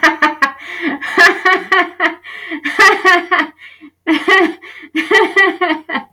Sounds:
Laughter